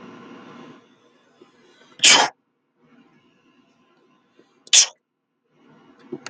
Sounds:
Sneeze